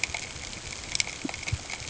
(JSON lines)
{"label": "ambient", "recorder": "HydroMoth"}